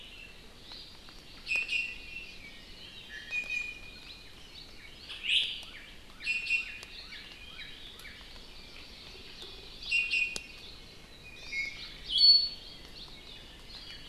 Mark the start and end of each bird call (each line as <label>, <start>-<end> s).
Hawaii Amakihi (Chlorodrepanis virens), 0.8-2.2 s
Iiwi (Drepanis coccinea), 1.4-2.4 s
Iiwi (Drepanis coccinea), 2.7-4.0 s
Iiwi (Drepanis coccinea), 5.2-5.6 s
Northern Cardinal (Cardinalis cardinalis), 5.6-8.1 s
Iiwi (Drepanis coccinea), 6.2-7.0 s
Hawaii Amakihi (Chlorodrepanis virens), 8.1-9.8 s
Iiwi (Drepanis coccinea), 9.9-10.6 s
Iiwi (Drepanis coccinea), 11.2-12.6 s
Hawaii Amakihi (Chlorodrepanis virens), 11.3-11.7 s